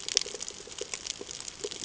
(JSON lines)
{"label": "ambient", "recorder": "HydroMoth"}